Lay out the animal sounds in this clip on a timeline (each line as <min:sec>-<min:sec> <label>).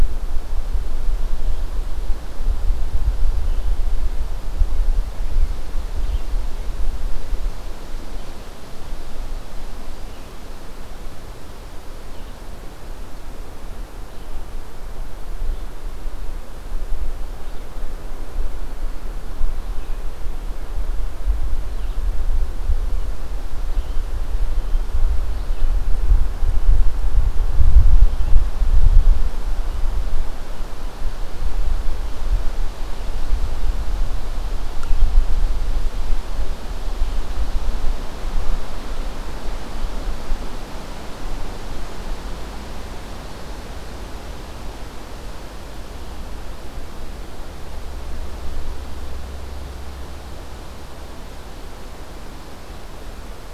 0:00.0-0:06.3 Red-eyed Vireo (Vireo olivaceus)
0:07.9-0:25.8 Red-eyed Vireo (Vireo olivaceus)